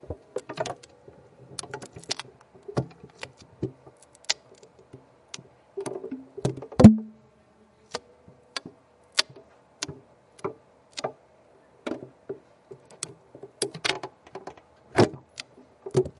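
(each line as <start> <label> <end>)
0.0 Wood being carved. 16.2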